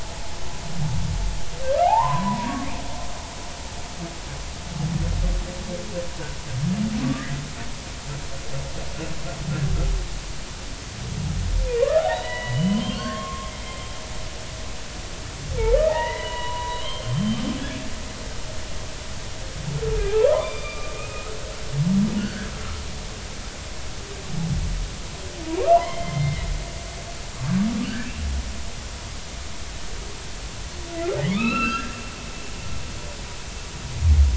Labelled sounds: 1.8	2.5	humpback whale, 0.80 to 1.2 kHz
11.8	13.5	humpback whale, 0.80 to 4.1 kHz
15.8	17.4	humpback whale, 0.80 to 3.3 kHz
20.1	21.3	humpback whale, 0.80 to 3.7 kHz
22.2	22.5	humpback whale, 1.4 to 1.8 kHz
25.6	26.5	humpback whale, 1.0 to 3.2 kHz
27.9	28.1	humpback whale, 1.5 to 1.8 kHz
31.2	31.9	humpback whale, 1.1 to 4.1 kHz

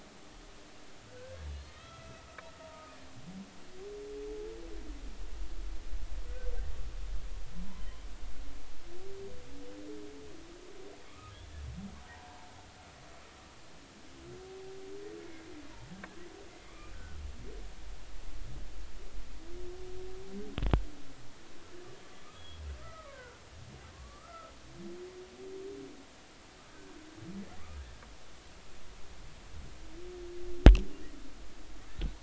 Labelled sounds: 1.4	2.9	humpback whale, 1.2 to 6.0 kHz
7.7	8.0	humpback whale, 1.8 to 2.1 kHz
11.0	11.3	humpback whale, 1.1 to 1.3 kHz
12.1	12.4	humpback whale, 0.80 to 1.0 kHz
16.6	17.2	humpback whale, 1.1 to 2.5 kHz
22.3	23.4	humpback whale, 0.96 to 3.4 kHz
23.9	24.5	humpback whale, 1.0 to 1.4 kHz

